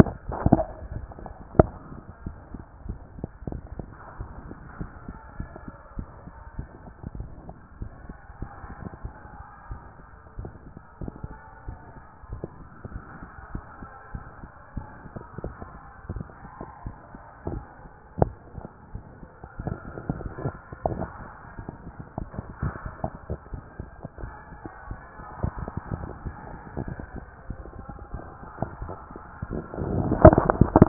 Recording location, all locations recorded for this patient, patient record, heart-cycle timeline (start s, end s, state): mitral valve (MV)
aortic valve (AV)+pulmonary valve (PV)+tricuspid valve (TV)+mitral valve (MV)
#Age: Child
#Sex: Female
#Height: 150.0 cm
#Weight: 49.7 kg
#Pregnancy status: False
#Murmur: Present
#Murmur locations: tricuspid valve (TV)
#Most audible location: tricuspid valve (TV)
#Systolic murmur timing: Holosystolic
#Systolic murmur shape: Plateau
#Systolic murmur grading: I/VI
#Systolic murmur pitch: Medium
#Systolic murmur quality: Blowing
#Diastolic murmur timing: nan
#Diastolic murmur shape: nan
#Diastolic murmur grading: nan
#Diastolic murmur pitch: nan
#Diastolic murmur quality: nan
#Outcome: Abnormal
#Campaign: 2014 screening campaign
0.00	2.10	unannotated
2.10	2.26	diastole
2.26	2.36	S1
2.36	2.52	systole
2.52	2.64	S2
2.64	2.86	diastole
2.86	2.98	S1
2.98	3.16	systole
3.16	3.26	S2
3.26	3.50	diastole
3.50	3.62	S1
3.62	3.76	systole
3.76	3.88	S2
3.88	4.18	diastole
4.18	4.30	S1
4.30	4.46	systole
4.46	4.56	S2
4.56	4.78	diastole
4.78	4.90	S1
4.90	5.08	systole
5.08	5.16	S2
5.16	5.38	diastole
5.38	5.48	S1
5.48	5.66	systole
5.66	5.76	S2
5.76	5.96	diastole
5.96	6.08	S1
6.08	6.24	systole
6.24	6.34	S2
6.34	6.56	diastole
6.56	6.68	S1
6.68	6.82	systole
6.82	6.92	S2
6.92	7.16	diastole
7.16	7.28	S1
7.28	7.46	systole
7.46	7.54	S2
7.54	7.80	diastole
7.80	7.90	S1
7.90	8.06	systole
8.06	8.16	S2
8.16	8.40	diastole
8.40	8.50	S1
8.50	8.64	systole
8.64	8.74	S2
8.74	9.04	diastole
9.04	9.14	S1
9.14	9.34	systole
9.34	9.42	S2
9.42	9.70	diastole
9.70	9.80	S1
9.80	10.00	systole
10.00	10.08	S2
10.08	10.38	diastole
10.38	10.50	S1
10.50	10.68	systole
10.68	10.78	S2
10.78	11.02	diastole
11.02	11.12	S1
11.12	11.26	systole
11.26	11.38	S2
11.38	11.66	diastole
11.66	11.78	S1
11.78	11.96	systole
11.96	12.04	S2
12.04	12.30	diastole
12.30	30.88	unannotated